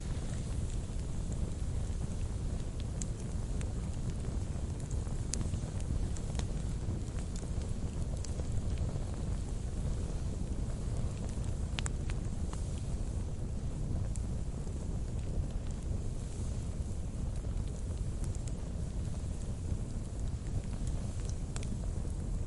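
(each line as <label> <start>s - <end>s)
Fire crackling. 0.0s - 22.5s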